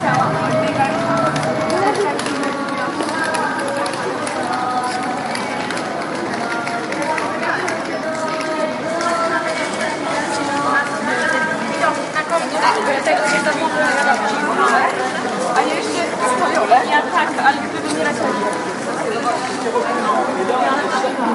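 Music is playing in the distance. 0:00.0 - 0:21.3
People are talking together in the background. 0:00.0 - 0:21.3

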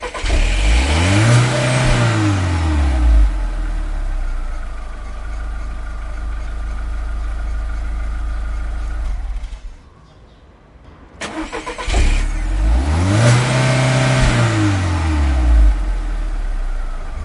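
A car engine starts and briefly revs. 0:00.0 - 0:04.9
An engine idles with a steady, consistent hum. 0:04.9 - 0:08.9
An engine gradually powers down with a noticeable drop in sound. 0:08.9 - 0:10.9
An attempt is made to start a car engine. 0:11.2 - 0:12.7
An engine revs strongly, increasing in intensity before settling. 0:12.7 - 0:15.9
The car engine is running with a stable background noise. 0:16.0 - 0:17.2

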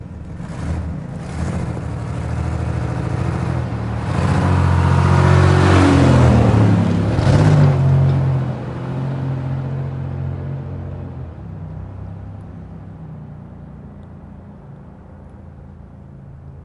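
A car is driving nearby and then moving into the distance. 0:00.4 - 0:16.6

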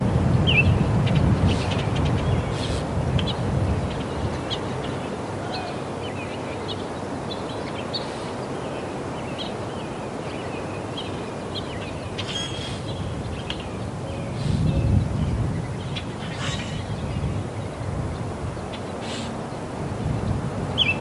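Multiple birds chirp repeatedly in the distant background. 0:00.0 - 0:21.0
Wind blowing constantly in the background. 0:00.0 - 0:21.0
A bird chirps loudly. 0:00.4 - 0:00.9
A bird screeches loudly in the distance. 0:18.8 - 0:19.5
A bird chirps loudly. 0:20.5 - 0:21.0

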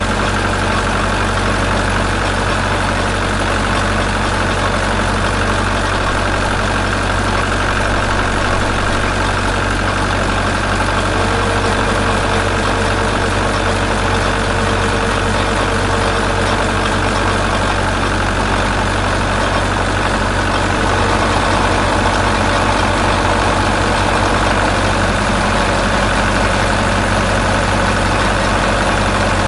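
A vehicle engine roars steadily outdoors. 0:00.0 - 0:29.5

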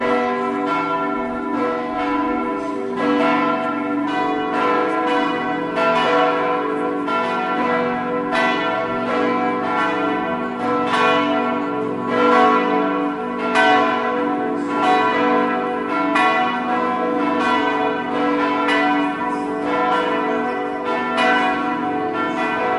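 Bells dong rhythmically in the distance. 0:00.0 - 0:22.8

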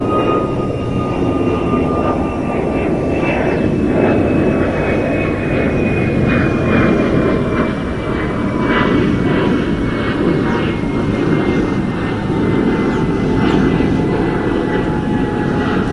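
An airplane flies with a steady, ambient engine hum that varies irregularly. 0:00.0 - 0:15.9

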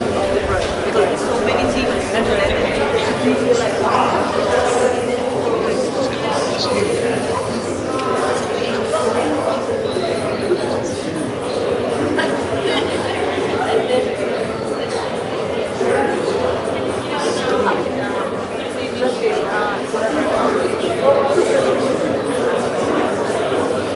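A fairly loud, continuous murmur of multiple people talking with overlapping voices and occasional clearer phrases. 0:00.0 - 0:24.0

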